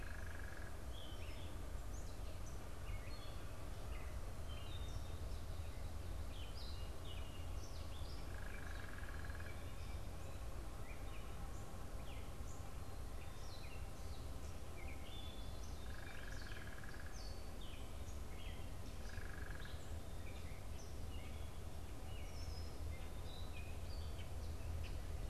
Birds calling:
unidentified bird
Gray Catbird (Dumetella carolinensis)

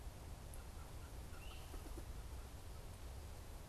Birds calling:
Great Crested Flycatcher (Myiarchus crinitus)

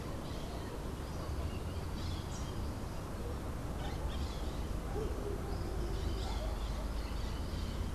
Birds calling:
Crimson-fronted Parakeet (Psittacara finschi)

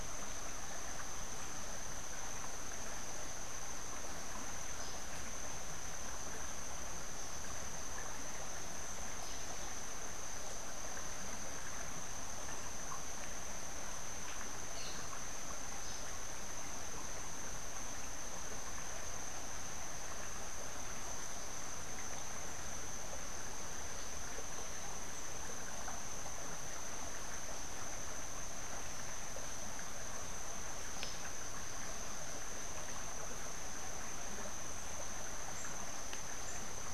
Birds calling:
Crimson-fronted Parakeet (Psittacara finschi)

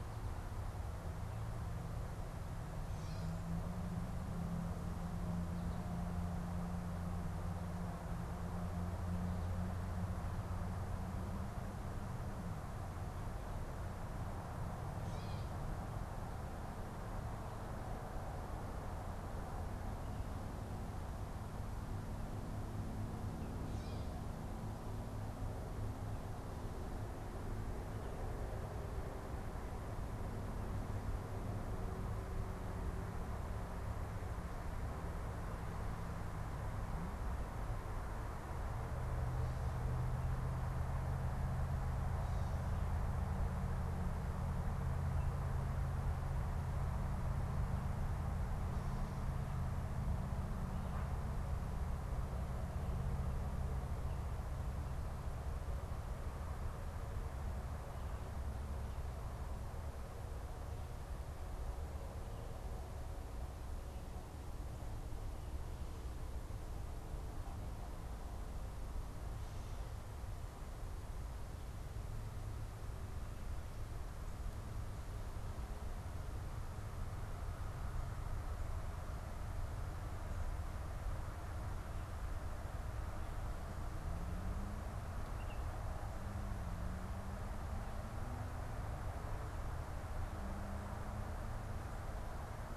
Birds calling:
Gray Catbird (Dumetella carolinensis)
Baltimore Oriole (Icterus galbula)

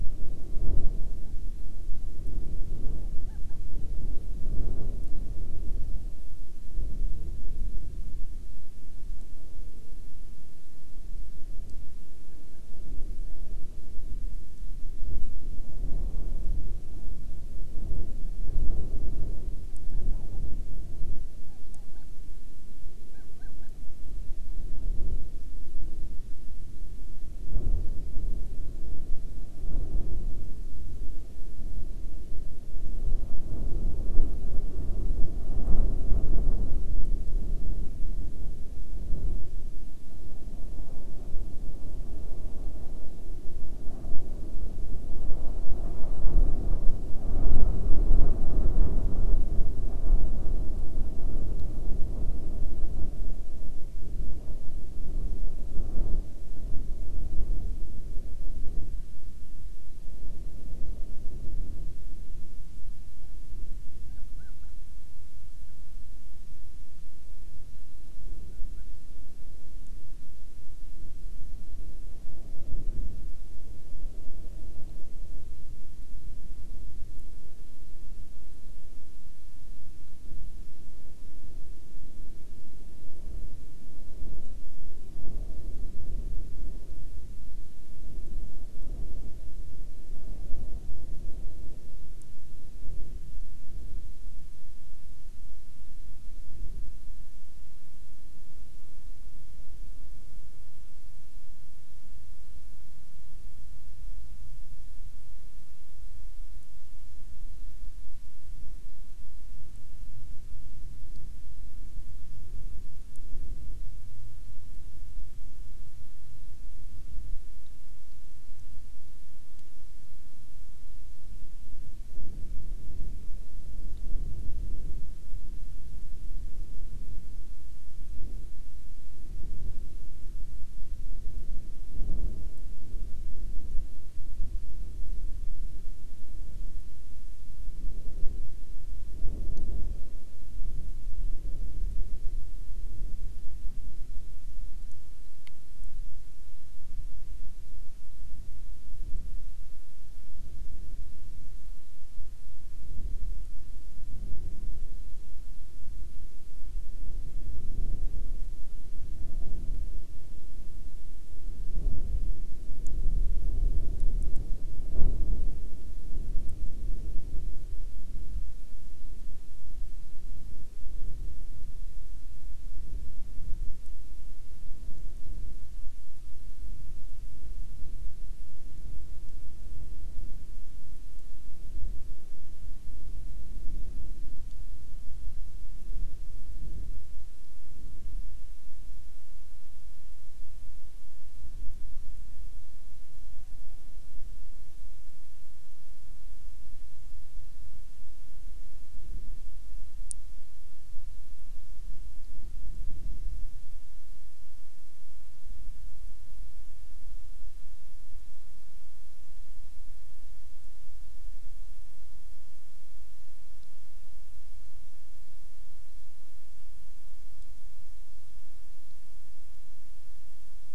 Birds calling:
Hawaiian Petrel (Pterodroma sandwichensis)

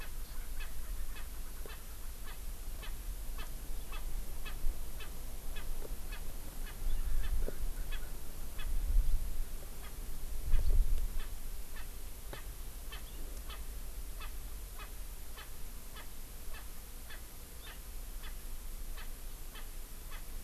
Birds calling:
Erckel's Francolin (Pternistis erckelii)

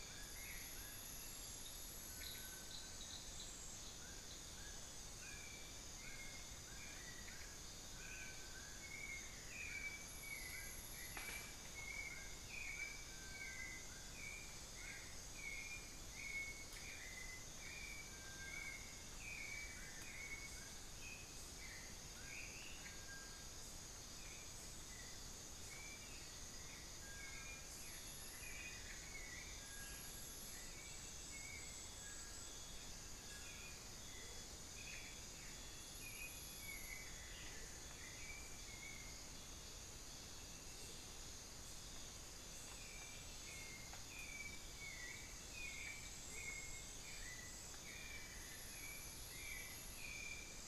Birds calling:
Amazonian Barred-Woodcreeper (Dendrocolaptes certhia)
Bartlett's Tinamou (Crypturellus bartletti)
Amazonian Motmot (Momotus momota)
Dull-capped Attila (Attila bolivianus)
unidentified bird
White-necked Thrush (Turdus albicollis)

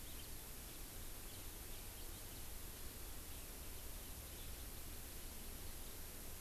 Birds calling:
House Finch (Haemorhous mexicanus)

